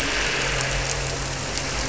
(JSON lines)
{"label": "anthrophony, boat engine", "recorder": "SoundTrap 300"}